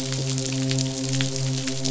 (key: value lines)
label: biophony, midshipman
recorder: SoundTrap 500